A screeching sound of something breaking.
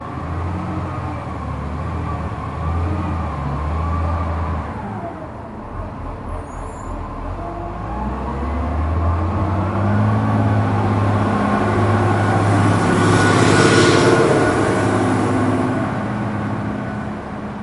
0:06.4 0:07.2

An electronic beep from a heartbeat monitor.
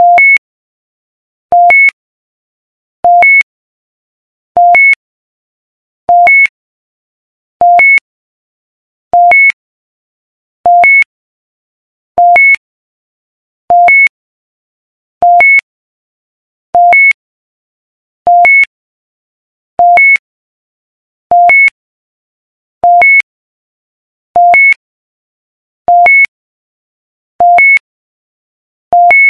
0:00.0 0:00.5, 0:01.4 0:02.0, 0:03.0 0:03.5, 0:04.5 0:05.1, 0:06.0 0:06.6, 0:07.5 0:08.1, 0:09.1 0:09.6, 0:10.6 0:11.2, 0:12.1 0:12.7, 0:13.7 0:14.2, 0:15.2 0:15.7, 0:16.7 0:17.2, 0:18.2 0:18.7, 0:19.7 0:20.3, 0:21.2 0:21.8, 0:22.8 0:23.3, 0:24.3 0:24.8, 0:25.8 0:26.3, 0:27.3 0:27.9, 0:28.9 0:29.3

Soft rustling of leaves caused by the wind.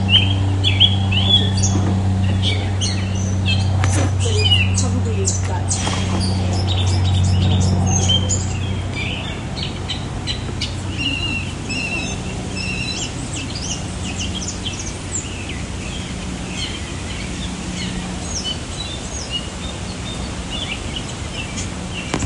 0:11.6 0:22.2

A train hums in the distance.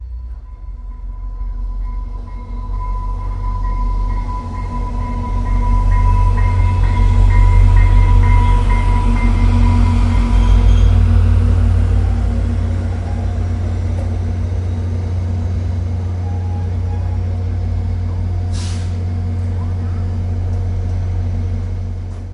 0:16.9 0:22.3

